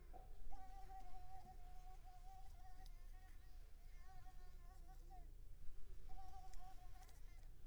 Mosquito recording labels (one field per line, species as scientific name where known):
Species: Mansonia africanus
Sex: female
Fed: unfed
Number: one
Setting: cup